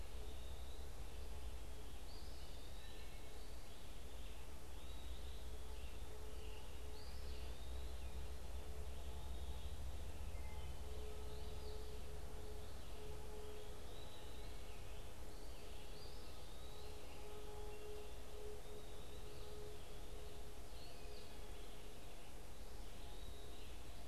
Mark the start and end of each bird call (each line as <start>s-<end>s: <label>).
0.0s-24.1s: Red-eyed Vireo (Vireo olivaceus)
0.1s-24.1s: Eastern Wood-Pewee (Contopus virens)
10.4s-10.9s: Wood Thrush (Hylocichla mustelina)